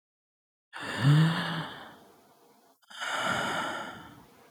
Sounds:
Sigh